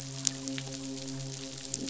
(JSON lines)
{"label": "biophony, midshipman", "recorder": "SoundTrap 500"}